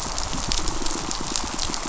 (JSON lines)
{"label": "biophony, pulse", "recorder": "SoundTrap 500"}